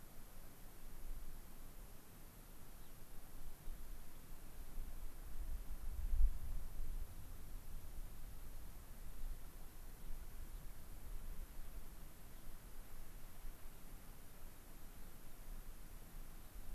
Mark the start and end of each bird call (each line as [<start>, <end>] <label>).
[2.74, 2.94] Gray-crowned Rosy-Finch (Leucosticte tephrocotis)